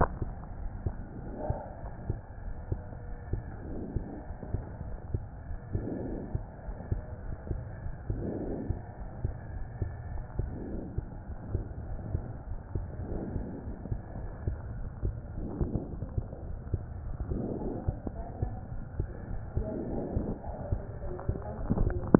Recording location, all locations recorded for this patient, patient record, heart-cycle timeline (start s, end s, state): aortic valve (AV)
aortic valve (AV)+pulmonary valve (PV)+tricuspid valve (TV)+mitral valve (MV)
#Age: Child
#Sex: Male
#Height: 108.0 cm
#Weight: 16.7 kg
#Pregnancy status: False
#Murmur: Absent
#Murmur locations: nan
#Most audible location: nan
#Systolic murmur timing: nan
#Systolic murmur shape: nan
#Systolic murmur grading: nan
#Systolic murmur pitch: nan
#Systolic murmur quality: nan
#Diastolic murmur timing: nan
#Diastolic murmur shape: nan
#Diastolic murmur grading: nan
#Diastolic murmur pitch: nan
#Diastolic murmur quality: nan
#Outcome: Normal
#Campaign: 2015 screening campaign
0.00	0.10	unannotated
0.10	0.19	systole
0.19	0.29	S2
0.29	0.60	diastole
0.60	0.70	S1
0.70	0.82	systole
0.82	0.98	S2
0.98	1.24	diastole
1.24	1.35	S1
1.35	1.44	systole
1.44	1.60	S2
1.60	1.82	diastole
1.82	1.91	S1
1.91	2.06	systole
2.06	2.20	S2
2.20	2.44	diastole
2.44	2.58	S1
2.58	2.70	systole
2.70	2.82	S2
2.82	3.07	diastole
3.07	3.16	S1
3.16	3.28	systole
3.28	3.44	S2
3.44	3.68	diastole
3.68	3.78	S1
3.78	3.92	systole
3.92	4.06	S2
4.06	4.27	diastole
4.27	4.36	S1
4.36	4.52	systole
4.52	4.64	S2
4.64	4.86	diastole
4.86	4.98	S1
4.98	5.10	systole
5.10	5.24	S2
5.24	5.48	diastole
5.48	5.58	S1
5.58	5.72	systole
5.72	5.86	S2
5.86	6.02	diastole
6.02	6.18	S1
6.18	6.32	systole
6.32	6.44	S2
6.44	6.65	diastole
6.65	6.76	S1
6.76	6.88	systole
6.88	7.02	S2
7.02	7.23	diastole
7.23	7.35	S1
7.35	7.48	systole
7.48	7.62	S2
7.62	7.82	diastole
7.82	7.96	S1
7.96	8.07	systole
8.07	8.20	S2
8.20	8.46	diastole
8.46	8.59	S1
8.59	8.67	systole
8.67	8.80	S2
8.80	9.00	diastole
9.00	9.10	S1
9.10	9.22	systole
9.22	9.36	S2
9.36	9.54	diastole
9.54	9.68	S1
9.68	9.78	systole
9.78	9.94	S2
9.94	10.10	diastole
10.10	10.26	S1
10.26	10.36	systole
10.36	10.51	S2
10.51	10.71	diastole
10.71	10.82	S1
10.82	10.95	systole
10.95	11.06	S2
11.06	11.27	diastole
11.27	11.38	S1
11.38	11.48	systole
11.48	11.64	S2
11.64	11.86	diastole
11.86	12.00	S1
12.00	12.12	systole
12.12	12.23	S2
12.23	12.48	diastole
12.48	12.60	S1
12.60	12.73	systole
12.73	12.86	S2
12.86	13.08	diastole
13.08	13.22	S1
13.22	13.34	systole
13.34	13.46	S2
13.46	13.65	diastole
13.65	13.76	S1
13.76	13.89	systole
13.89	14.00	S2
14.00	14.20	diastole
14.20	14.32	S1
14.32	14.45	systole
14.45	14.58	S2
14.58	14.77	diastole
14.77	14.92	S1
14.92	15.02	systole
15.02	15.14	S2
15.14	15.36	diastole
15.36	15.48	S1
15.48	15.58	systole
15.58	15.71	S2
15.71	15.94	diastole
15.94	16.08	S1
16.08	16.16	systole
16.16	16.26	S2
16.26	16.48	diastole
16.48	16.58	S1
16.58	16.70	systole
16.70	16.82	S2
16.82	17.02	diastole
17.02	17.16	S1
17.16	17.30	systole
17.30	17.44	S2
17.44	17.62	diastole
17.62	17.76	S1
17.76	17.84	systole
17.84	17.98	S2
17.98	18.18	diastole
18.18	18.26	S1
18.26	18.40	systole
18.40	18.54	S2
18.54	18.72	diastole
18.72	18.84	S1
18.84	18.96	systole
18.96	19.12	S2
19.12	19.29	diastole
19.29	19.42	S1
19.42	19.54	systole
19.54	19.67	S2
19.67	19.88	diastole
19.88	20.05	S1
20.05	20.13	systole
20.13	20.26	S2
20.26	20.49	diastole
20.49	22.19	unannotated